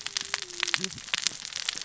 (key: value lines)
label: biophony, cascading saw
recorder: SoundTrap 600 or HydroMoth